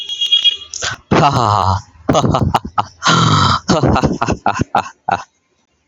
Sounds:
Laughter